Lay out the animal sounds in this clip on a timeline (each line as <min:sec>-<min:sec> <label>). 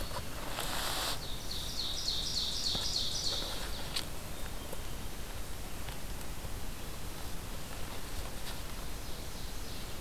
0:01.2-0:03.8 Ovenbird (Seiurus aurocapilla)
0:03.7-0:04.9 Hermit Thrush (Catharus guttatus)
0:06.2-0:07.5 Black-throated Green Warbler (Setophaga virens)
0:07.6-0:09.9 Ovenbird (Seiurus aurocapilla)